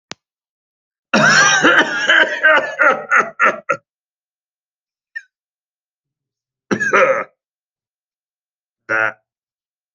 {"expert_labels": [{"quality": "good", "cough_type": "dry", "dyspnea": false, "wheezing": false, "stridor": false, "choking": false, "congestion": false, "nothing": true, "diagnosis": "COVID-19", "severity": "severe"}], "age": 29, "gender": "male", "respiratory_condition": false, "fever_muscle_pain": false, "status": "COVID-19"}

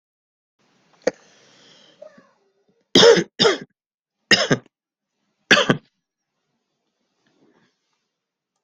{"expert_labels": [{"quality": "good", "cough_type": "dry", "dyspnea": false, "wheezing": false, "stridor": false, "choking": false, "congestion": false, "nothing": true, "diagnosis": "healthy cough", "severity": "pseudocough/healthy cough"}], "age": 37, "gender": "male", "respiratory_condition": true, "fever_muscle_pain": true, "status": "symptomatic"}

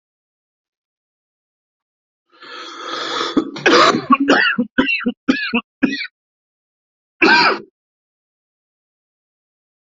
{"expert_labels": [{"quality": "ok", "cough_type": "wet", "dyspnea": false, "wheezing": false, "stridor": false, "choking": false, "congestion": false, "nothing": true, "diagnosis": "obstructive lung disease", "severity": "severe"}], "age": 32, "gender": "male", "respiratory_condition": false, "fever_muscle_pain": false, "status": "COVID-19"}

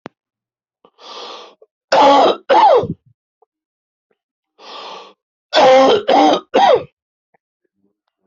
{"expert_labels": [{"quality": "ok", "cough_type": "dry", "dyspnea": false, "wheezing": true, "stridor": false, "choking": false, "congestion": false, "nothing": false, "diagnosis": "COVID-19", "severity": "severe"}], "age": 57, "gender": "male", "respiratory_condition": false, "fever_muscle_pain": false, "status": "healthy"}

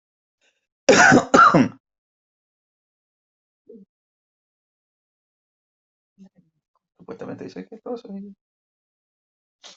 {"expert_labels": [{"quality": "ok", "cough_type": "dry", "dyspnea": false, "wheezing": false, "stridor": false, "choking": false, "congestion": false, "nothing": true, "diagnosis": "lower respiratory tract infection", "severity": "mild"}], "age": 40, "gender": "male", "respiratory_condition": false, "fever_muscle_pain": false, "status": "COVID-19"}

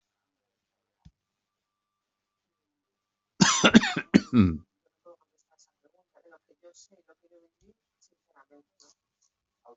{"expert_labels": [{"quality": "good", "cough_type": "dry", "dyspnea": false, "wheezing": false, "stridor": false, "choking": false, "congestion": false, "nothing": true, "diagnosis": "healthy cough", "severity": "pseudocough/healthy cough"}], "age": 47, "gender": "male", "respiratory_condition": false, "fever_muscle_pain": false, "status": "healthy"}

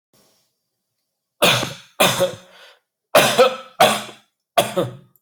{"expert_labels": [{"quality": "ok", "cough_type": "unknown", "dyspnea": false, "wheezing": false, "stridor": false, "choking": false, "congestion": false, "nothing": true, "diagnosis": "healthy cough", "severity": "pseudocough/healthy cough"}], "age": 29, "gender": "male", "respiratory_condition": false, "fever_muscle_pain": false, "status": "healthy"}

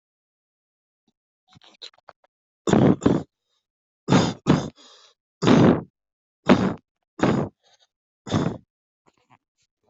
{"expert_labels": [{"quality": "poor", "cough_type": "unknown", "dyspnea": false, "wheezing": false, "stridor": false, "choking": false, "congestion": false, "nothing": true, "diagnosis": "healthy cough", "severity": "pseudocough/healthy cough"}, {"quality": "ok", "cough_type": "unknown", "dyspnea": false, "wheezing": false, "stridor": false, "choking": false, "congestion": false, "nothing": true, "diagnosis": "COVID-19", "severity": "unknown"}, {"quality": "poor", "cough_type": "unknown", "dyspnea": false, "wheezing": false, "stridor": false, "choking": false, "congestion": false, "nothing": true, "diagnosis": "upper respiratory tract infection", "severity": "unknown"}, {"quality": "poor", "cough_type": "dry", "dyspnea": false, "wheezing": false, "stridor": false, "choking": false, "congestion": false, "nothing": true, "diagnosis": "COVID-19", "severity": "mild"}], "age": 39, "gender": "male", "respiratory_condition": false, "fever_muscle_pain": true, "status": "COVID-19"}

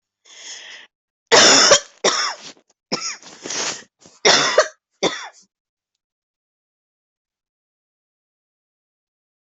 {"expert_labels": [{"quality": "good", "cough_type": "dry", "dyspnea": false, "wheezing": false, "stridor": false, "choking": false, "congestion": true, "nothing": false, "diagnosis": "upper respiratory tract infection", "severity": "unknown"}], "age": 40, "gender": "female", "respiratory_condition": false, "fever_muscle_pain": false, "status": "symptomatic"}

